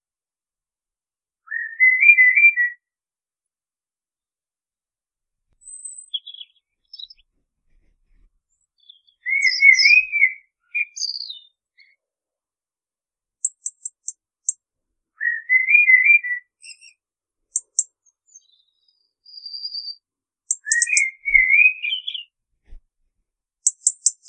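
A bird calls loudly and clearly. 1.5 - 2.7
A small bird is singing in a high pitch. 5.6 - 7.2
A small, high-pitched bird calls faintly but clearly in the background. 8.2 - 8.7
A bird is calling clearly in the background. 8.7 - 9.2
A high-pitched bird calls in the background. 9.2 - 10.0
A bird calls loudly and clearly. 9.2 - 10.4
A bird calls briefly but clearly. 10.7 - 10.9
A small, high-pitched bird chirps. 11.0 - 11.4
A bird calls briefly in the background. 11.6 - 11.9
A bird sings a series of distinct, very short chirps. 13.4 - 14.6
A bird calls loudly. 15.2 - 16.4
A bird calls briefly. 16.6 - 16.9
A bird chirps twice with two distinct, very brief sounds. 17.5 - 17.9
A bird is singing. 17.9 - 20.0
A bird tweets in a series of four brief chirps. 20.5 - 21.0
A bird calls loudly in a complex manner. 20.6 - 22.2
A bird calls with three distinct, very brief chirps. 23.6 - 24.2

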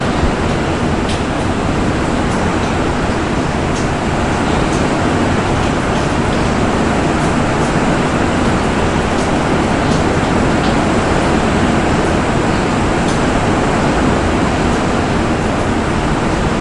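Powerful wind and heavy rain, likely caused by a storm. 0.0 - 16.6

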